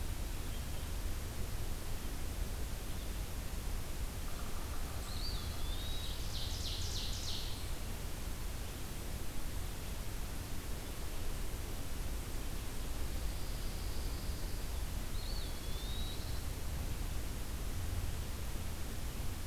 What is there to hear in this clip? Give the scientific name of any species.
Sphyrapicus varius, Contopus virens, Seiurus aurocapilla, Setophaga pinus